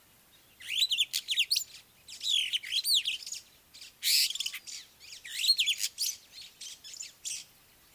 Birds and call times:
Superb Starling (Lamprotornis superbus): 0:04.2
White-browed Sparrow-Weaver (Plocepasser mahali): 0:06.7

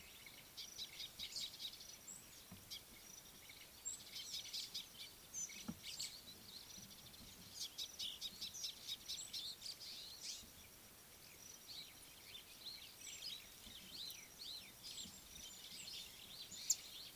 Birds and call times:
Scarlet-chested Sunbird (Chalcomitra senegalensis): 0:08.7
Superb Starling (Lamprotornis superbus): 0:14.1

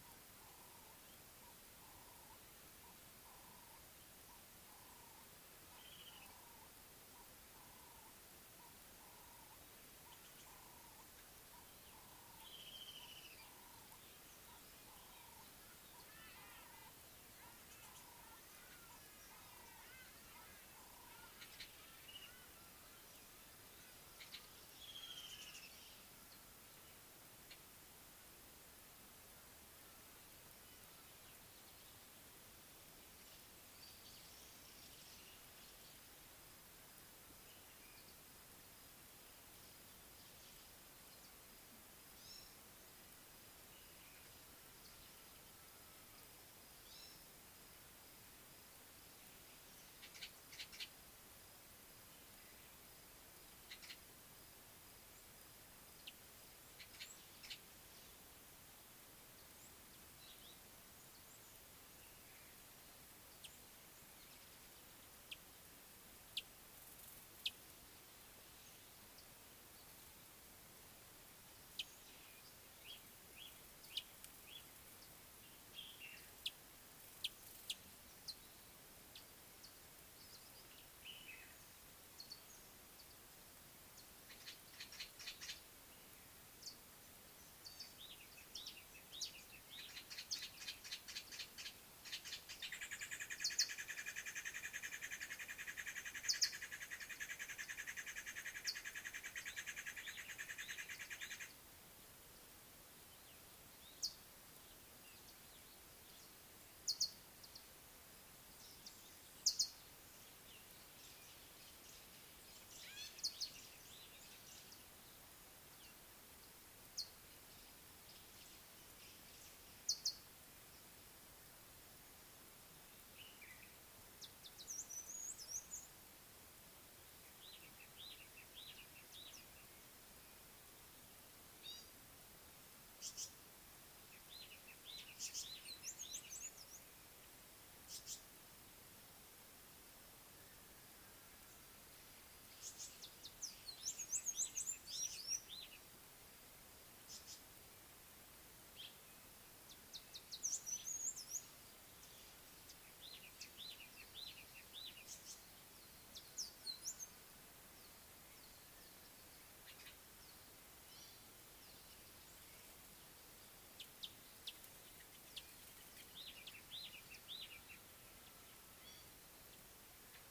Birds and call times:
Ring-necked Dove (Streptopelia capicola): 0:02.0
Spectacled Weaver (Ploceus ocularis): 0:05.9, 0:12.9, 0:25.0
Hadada Ibis (Bostrychia hagedash): 0:16.3
Gray-backed Camaroptera (Camaroptera brevicaudata): 0:42.3, 0:46.9, 2:11.7
Brown Babbler (Turdoides plebejus): 0:50.1, 0:53.7, 0:57.0, 1:24.9, 1:30.8, 1:35.4, 1:40.0, 2:39.7
Scarlet-chested Sunbird (Chalcomitra senegalensis): 1:06.3, 1:17.2, 2:44.4
Slate-colored Boubou (Laniarius funebris): 1:15.9
Mariqua Sunbird (Cinnyris mariquensis): 1:36.3, 1:46.9
Common Bulbul (Pycnonotus barbatus): 2:03.4
Tawny-flanked Prinia (Prinia subflava): 2:13.0, 2:15.3, 2:17.9, 2:35.2
Red-rumped Swallow (Cecropis daurica): 2:28.8

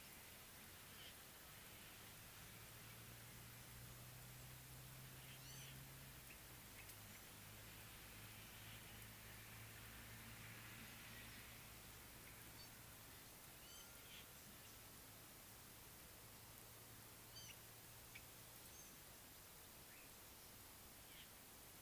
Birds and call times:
Gray-backed Camaroptera (Camaroptera brevicaudata): 0:05.5, 0:17.4

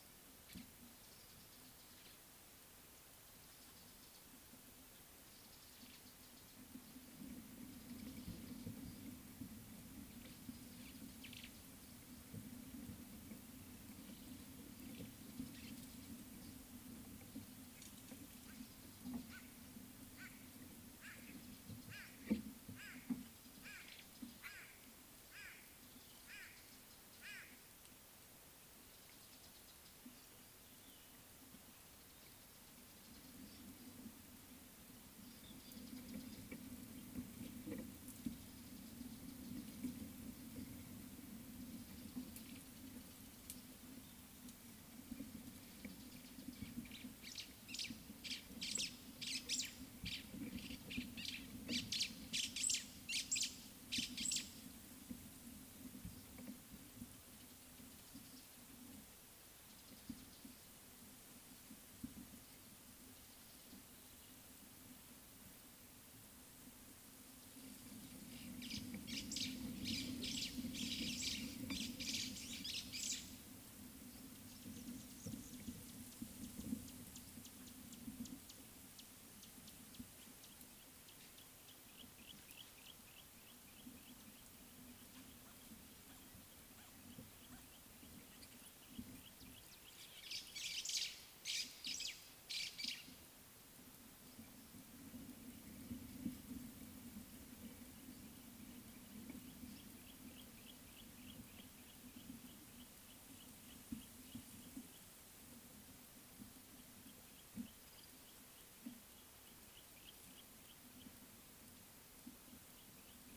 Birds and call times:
White-bellied Go-away-bird (Corythaixoides leucogaster): 0:24.5
White-browed Sparrow-Weaver (Plocepasser mahali): 0:48.7, 0:52.4, 1:11.0, 1:31.5
Yellow-breasted Apalis (Apalis flavida): 1:23.2

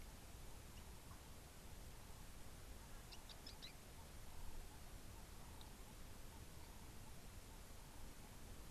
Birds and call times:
Quailfinch (Ortygospiza atricollis): 0:03.3

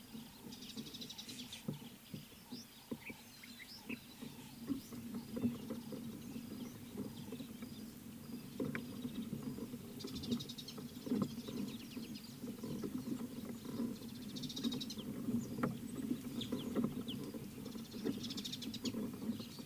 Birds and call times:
Mariqua Sunbird (Cinnyris mariquensis): 0:01.2, 0:10.3, 0:14.7, 0:18.5
Scarlet-chested Sunbird (Chalcomitra senegalensis): 0:16.5

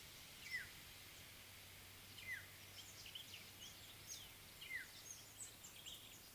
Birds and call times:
African Black-headed Oriole (Oriolus larvatus): 0:02.4
Speckled Mousebird (Colius striatus): 0:05.1

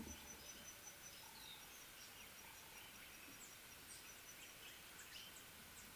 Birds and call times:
Pale White-eye (Zosterops flavilateralis): 0:01.4

